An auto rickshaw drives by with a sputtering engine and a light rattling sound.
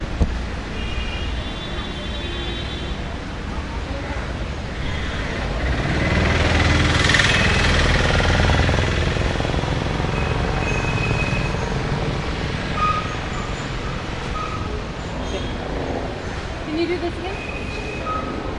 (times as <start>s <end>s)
4.1s 12.0s